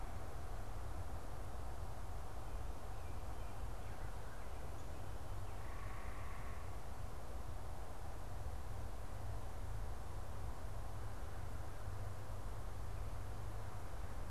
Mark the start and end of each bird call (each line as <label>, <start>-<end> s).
unidentified bird, 5.6-6.9 s